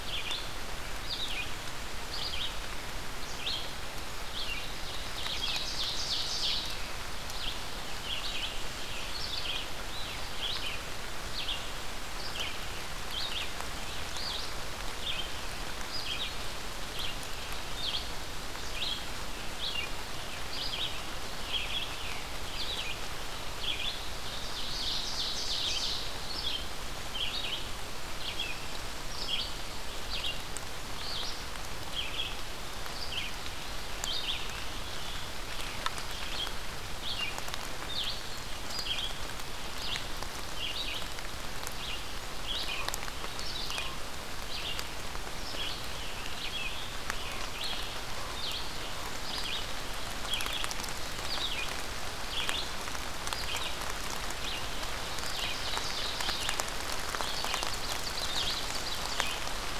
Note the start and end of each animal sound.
[0.00, 27.70] Red-eyed Vireo (Vireo olivaceus)
[4.78, 6.80] Ovenbird (Seiurus aurocapilla)
[24.09, 26.02] Ovenbird (Seiurus aurocapilla)
[28.09, 59.79] Red-eyed Vireo (Vireo olivaceus)
[45.85, 47.51] Scarlet Tanager (Piranga olivacea)
[54.99, 56.35] Ovenbird (Seiurus aurocapilla)
[57.04, 59.21] Ovenbird (Seiurus aurocapilla)

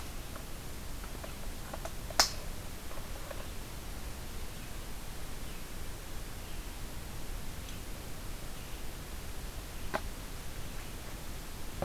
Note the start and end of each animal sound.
[4.12, 11.84] Red-eyed Vireo (Vireo olivaceus)

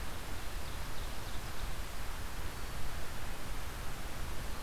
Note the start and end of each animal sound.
[0.00, 1.80] Ovenbird (Seiurus aurocapilla)

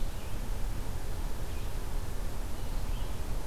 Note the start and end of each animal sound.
[0.00, 3.47] Red-eyed Vireo (Vireo olivaceus)

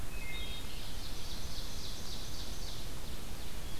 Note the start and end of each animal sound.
[0.00, 0.65] Wood Thrush (Hylocichla mustelina)
[0.44, 3.79] Ovenbird (Seiurus aurocapilla)

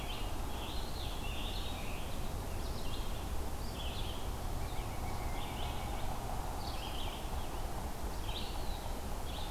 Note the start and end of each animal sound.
[0.00, 2.18] Scarlet Tanager (Piranga olivacea)
[0.00, 9.51] Red-eyed Vireo (Vireo olivaceus)
[4.43, 6.09] Pileated Woodpecker (Dryocopus pileatus)

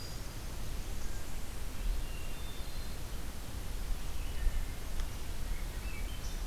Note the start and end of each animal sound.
[0.00, 0.59] Black-throated Green Warbler (Setophaga virens)
[0.34, 1.83] Blackburnian Warbler (Setophaga fusca)
[1.54, 3.17] Hermit Thrush (Catharus guttatus)
[4.00, 4.77] Wood Thrush (Hylocichla mustelina)
[5.32, 6.46] Swainson's Thrush (Catharus ustulatus)

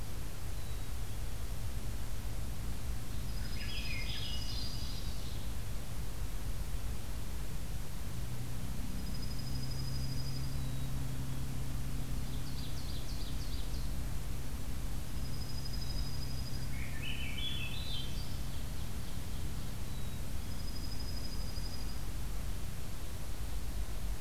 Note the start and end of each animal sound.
[0.54, 1.51] Black-capped Chickadee (Poecile atricapillus)
[3.20, 5.09] Dark-eyed Junco (Junco hyemalis)
[3.29, 4.76] Swainson's Thrush (Catharus ustulatus)
[3.43, 5.39] Ovenbird (Seiurus aurocapilla)
[8.81, 10.62] Dark-eyed Junco (Junco hyemalis)
[10.52, 11.41] Black-capped Chickadee (Poecile atricapillus)
[12.11, 13.96] Ovenbird (Seiurus aurocapilla)
[15.03, 16.77] Dark-eyed Junco (Junco hyemalis)
[15.69, 16.65] Black-capped Chickadee (Poecile atricapillus)
[16.50, 18.41] Swainson's Thrush (Catharus ustulatus)
[17.91, 19.74] Ovenbird (Seiurus aurocapilla)
[19.81, 20.75] Black-capped Chickadee (Poecile atricapillus)
[20.48, 22.07] Dark-eyed Junco (Junco hyemalis)

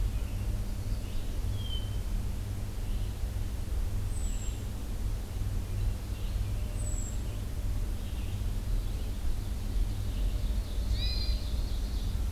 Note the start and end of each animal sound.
[0.00, 12.31] Red-eyed Vireo (Vireo olivaceus)
[0.46, 2.07] American Goldfinch (Spinus tristis)
[1.42, 2.01] Hermit Thrush (Catharus guttatus)
[4.05, 4.76] Hermit Thrush (Catharus guttatus)
[6.65, 7.18] Hermit Thrush (Catharus guttatus)
[9.66, 12.27] Ovenbird (Seiurus aurocapilla)
[10.91, 11.51] Hermit Thrush (Catharus guttatus)

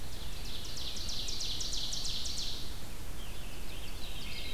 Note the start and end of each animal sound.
[0.00, 2.77] Ovenbird (Seiurus aurocapilla)
[2.97, 4.54] Scarlet Tanager (Piranga olivacea)
[3.14, 4.54] Ovenbird (Seiurus aurocapilla)

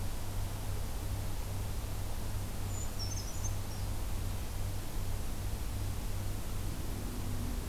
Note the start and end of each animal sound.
[2.58, 3.81] Brown Creeper (Certhia americana)

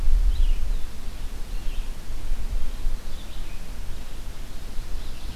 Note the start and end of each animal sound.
[0.00, 5.35] Red-eyed Vireo (Vireo olivaceus)

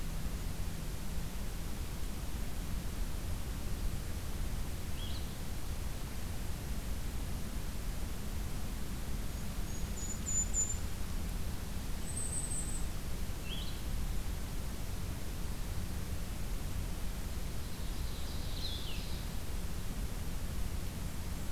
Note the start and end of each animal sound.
[4.82, 5.39] Blue-headed Vireo (Vireo solitarius)
[9.42, 10.92] Golden-crowned Kinglet (Regulus satrapa)
[11.86, 12.92] Golden-crowned Kinglet (Regulus satrapa)
[13.33, 13.84] Blue-headed Vireo (Vireo solitarius)
[17.67, 19.44] Ovenbird (Seiurus aurocapilla)
[18.55, 19.17] Blue-headed Vireo (Vireo solitarius)

